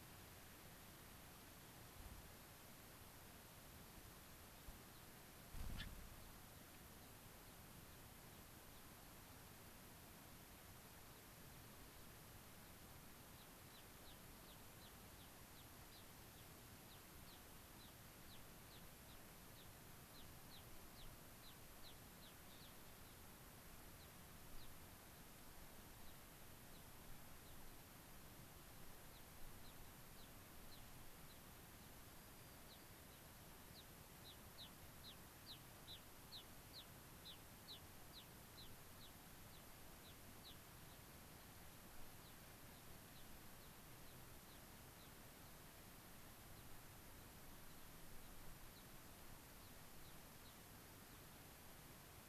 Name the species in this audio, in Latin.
Leucosticte tephrocotis, Zonotrichia leucophrys